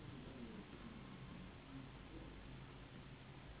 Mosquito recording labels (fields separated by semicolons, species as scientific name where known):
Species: Anopheles gambiae s.s.; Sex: female; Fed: unfed; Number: one; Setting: insect culture